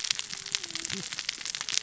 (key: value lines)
label: biophony, cascading saw
recorder: SoundTrap 600 or HydroMoth